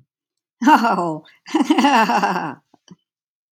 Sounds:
Laughter